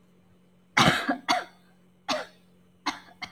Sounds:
Cough